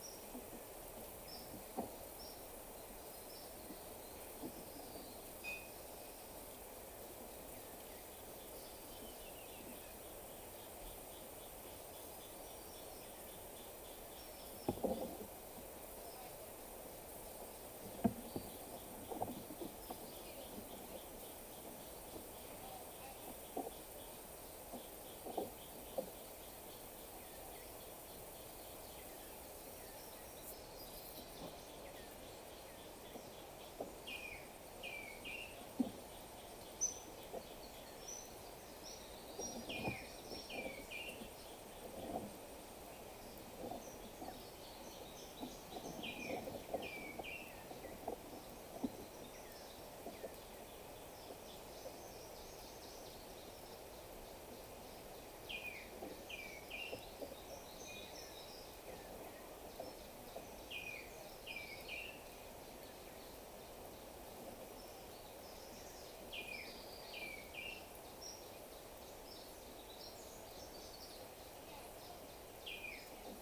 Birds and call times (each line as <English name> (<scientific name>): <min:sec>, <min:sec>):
Cinnamon-chested Bee-eater (Merops oreobates): 0:02.1, 0:36.7
African Emerald Cuckoo (Chrysococcyx cupreus): 0:34.7, 0:40.5, 0:56.2, 1:07.1